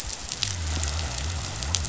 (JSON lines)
{"label": "biophony", "recorder": "SoundTrap 500"}